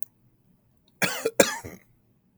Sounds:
Cough